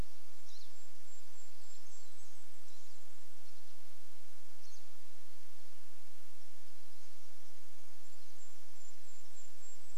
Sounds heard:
Golden-crowned Kinglet song
Pine Siskin call

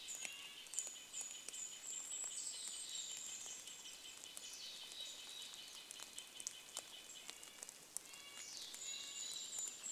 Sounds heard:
Mountain Chickadee call
Golden-crowned Kinglet song
rain
Red-breasted Nuthatch song
Steller's Jay call

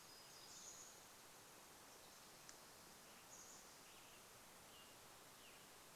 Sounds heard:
Chestnut-backed Chickadee call
Western Tanager song
warbler song
Pacific Wren song

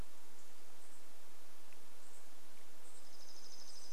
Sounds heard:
Chipping Sparrow song
unidentified bird chip note

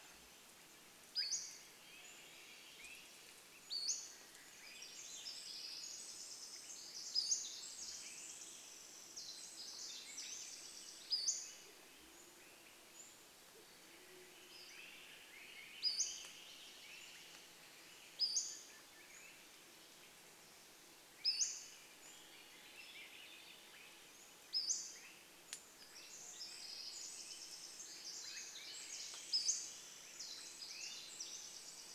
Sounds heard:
Pacific-slope Flycatcher call
Swainson's Thrush song
Swainson's Thrush call
Band-tailed Pigeon song
Pacific Wren song

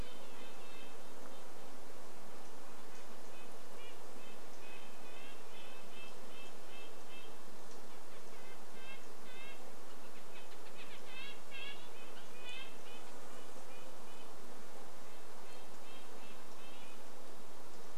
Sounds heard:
Red-breasted Nuthatch call
unidentified bird chip note
Red-breasted Nuthatch song
insect buzz

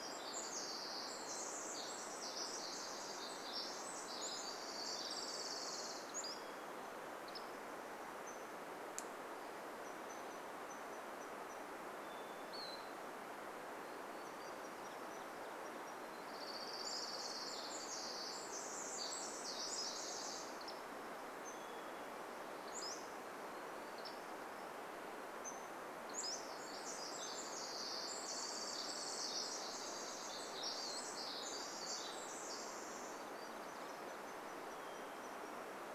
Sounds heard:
Hermit Thrush song
Golden-crowned Kinglet call
Pacific-slope Flycatcher call
Pacific Wren song
Orange-crowned Warbler song
Pacific-slope Flycatcher song
unidentified sound

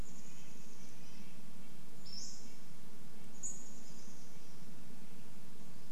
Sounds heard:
Chestnut-backed Chickadee call
Red-breasted Nuthatch song
Pacific-slope Flycatcher call
insect buzz

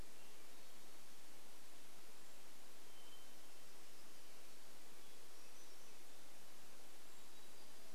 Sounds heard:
Black-throated Gray Warbler song
Hermit Thrush song

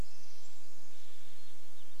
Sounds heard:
Steller's Jay call
Pacific Wren song
Swainson's Thrush song

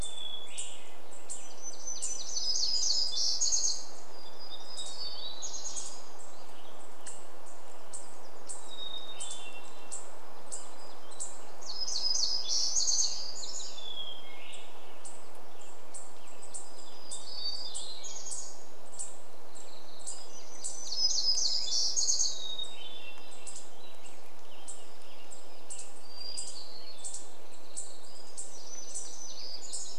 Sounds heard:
Western Tanager song
unidentified bird chip note
unidentified sound
Hermit Thrush song
warbler song

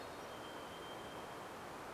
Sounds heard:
Varied Thrush song

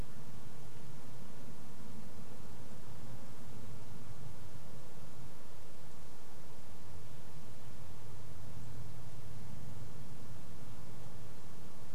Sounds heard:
airplane
insect buzz

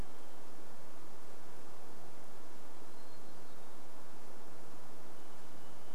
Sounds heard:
Hermit Thrush song
Varied Thrush song

